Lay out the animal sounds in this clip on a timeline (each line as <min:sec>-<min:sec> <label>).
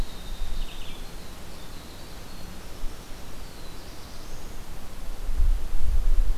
0:00.0-0:03.3 Winter Wren (Troglodytes hiemalis)
0:03.2-0:04.7 Black-throated Blue Warbler (Setophaga caerulescens)